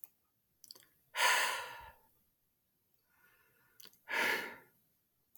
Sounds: Sigh